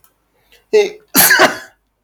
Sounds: Sneeze